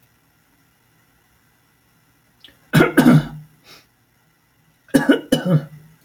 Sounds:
Cough